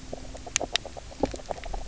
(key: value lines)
label: biophony, knock croak
recorder: SoundTrap 300